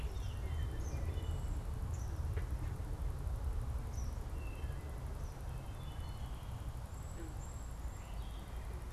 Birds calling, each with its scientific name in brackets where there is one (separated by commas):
Gray Catbird (Dumetella carolinensis), Eastern Kingbird (Tyrannus tyrannus), Wood Thrush (Hylocichla mustelina), Cedar Waxwing (Bombycilla cedrorum)